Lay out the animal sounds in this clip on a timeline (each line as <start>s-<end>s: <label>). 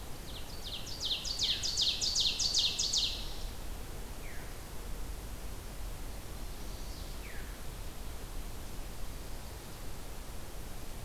0.0s-3.3s: Ovenbird (Seiurus aurocapilla)
1.3s-1.7s: Veery (Catharus fuscescens)
4.2s-4.6s: Veery (Catharus fuscescens)
6.2s-7.1s: Chestnut-sided Warbler (Setophaga pensylvanica)
7.0s-7.6s: Veery (Catharus fuscescens)